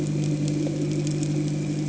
{"label": "anthrophony, boat engine", "recorder": "HydroMoth"}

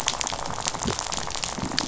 {"label": "biophony, rattle", "recorder": "SoundTrap 500"}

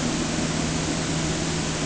{"label": "anthrophony, boat engine", "recorder": "HydroMoth"}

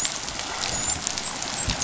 {"label": "biophony, dolphin", "recorder": "SoundTrap 500"}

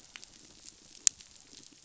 {"label": "biophony", "recorder": "SoundTrap 500"}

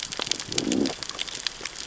{"label": "biophony, growl", "recorder": "SoundTrap 600 or HydroMoth"}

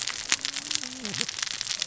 {"label": "biophony, cascading saw", "recorder": "SoundTrap 600 or HydroMoth"}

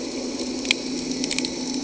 {"label": "anthrophony, boat engine", "recorder": "HydroMoth"}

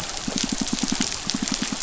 {"label": "biophony, pulse", "recorder": "SoundTrap 500"}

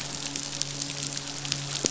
{"label": "biophony, midshipman", "recorder": "SoundTrap 500"}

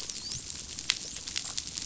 {"label": "biophony, dolphin", "recorder": "SoundTrap 500"}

